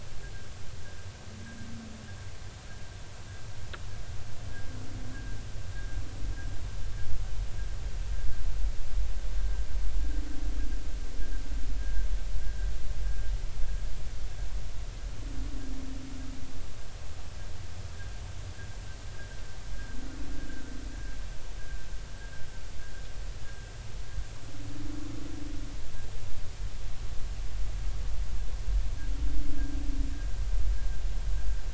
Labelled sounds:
11.8	12.1	humpback whale, 1.5 to 1.7 kHz
19.1	19.4	humpback whale, 1.5 to 1.7 kHz

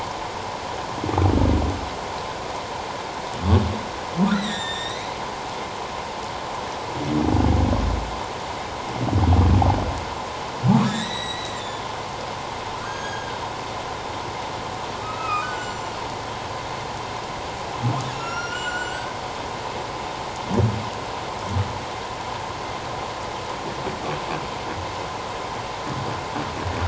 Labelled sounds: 4.3	5.1	humpback whale, 1.8 to 7.5 kHz
10.8	11.8	humpback whale, 1.6 to 7.9 kHz
12.8	13.4	humpback whale, 1.5 to 6.6 kHz
15.0	15.9	humpback whale, 1.2 to 7.4 kHz
18.1	19.1	humpback whale, 1.3 to 7.5 kHz

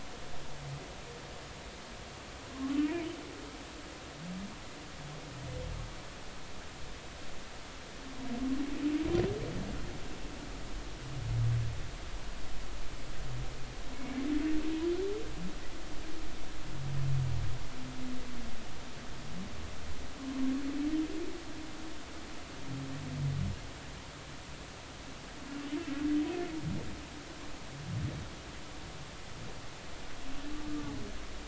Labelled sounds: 2.8	3.1	humpback whale, 2.2 to 2.5 kHz
13.9	14.2	humpback whale, 2.2 to 2.4 kHz

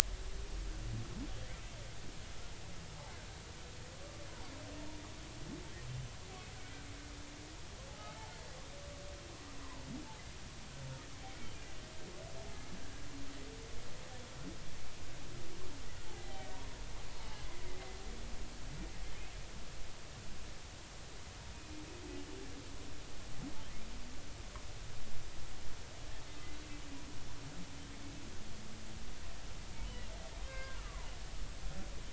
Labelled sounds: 8.0	8.3	humpback whale, 2.1 to 2.2 kHz
16.1	16.5	humpback whale, 0.80 to 2.1 kHz
29.9	31.1	humpback whale, 0.86 to 3.1 kHz

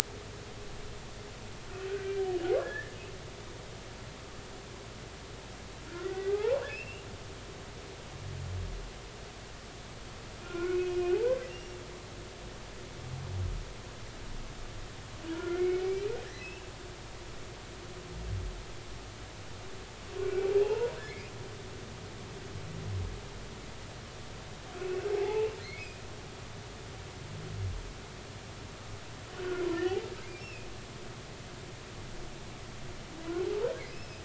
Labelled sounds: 1.9	3.0	humpback whale, 1.4 to 1.9 kHz
5.9	7.1	humpback whale, 0.80 to 2.9 kHz
10.4	11.8	humpback whale, 0.80 to 5.7 kHz
15.3	16.6	humpback whale, 1.3 to 2.8 kHz
20.2	21.0	humpback whale, 0.80 to 2.8 kHz
24.8	26.0	humpback whale, 0.80 to 2.8 kHz
29.7	30.7	humpback whale, 0.80 to 2.8 kHz
33.9	34.2	humpback whale, 4.8 to 5.4 kHz

